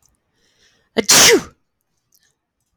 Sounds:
Sneeze